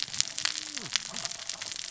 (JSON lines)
{"label": "biophony, cascading saw", "recorder": "SoundTrap 600 or HydroMoth"}